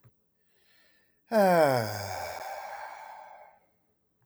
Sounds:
Sigh